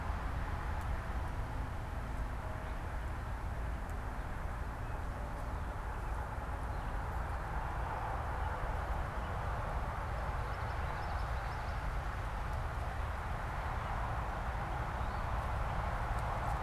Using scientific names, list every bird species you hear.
Geothlypis trichas